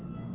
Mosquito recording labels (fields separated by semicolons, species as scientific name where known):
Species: Aedes albopictus; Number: one; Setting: insect culture